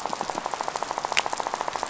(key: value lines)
label: biophony, rattle
recorder: SoundTrap 500